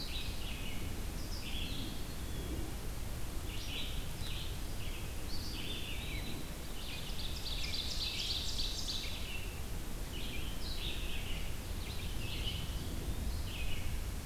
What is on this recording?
Red-eyed Vireo, Eastern Wood-Pewee, Ovenbird